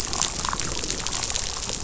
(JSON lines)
{"label": "biophony, rattle response", "recorder": "SoundTrap 500"}